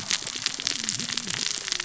{"label": "biophony, cascading saw", "recorder": "SoundTrap 600 or HydroMoth"}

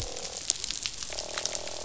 {"label": "biophony, croak", "recorder": "SoundTrap 500"}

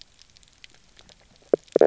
{"label": "biophony, knock croak", "recorder": "SoundTrap 300"}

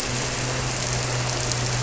{"label": "anthrophony, boat engine", "recorder": "SoundTrap 300"}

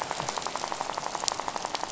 {"label": "biophony, rattle", "recorder": "SoundTrap 500"}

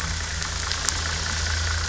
{"label": "anthrophony, boat engine", "recorder": "SoundTrap 500"}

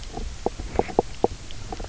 {"label": "biophony, knock croak", "recorder": "SoundTrap 300"}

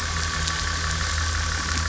{"label": "anthrophony, boat engine", "recorder": "SoundTrap 500"}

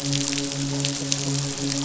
{"label": "biophony, midshipman", "recorder": "SoundTrap 500"}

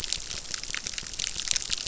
{"label": "biophony, crackle", "recorder": "SoundTrap 600"}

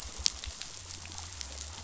{"label": "biophony", "recorder": "SoundTrap 500"}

